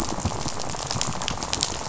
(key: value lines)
label: biophony, rattle
recorder: SoundTrap 500